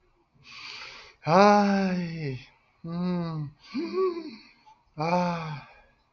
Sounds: Sigh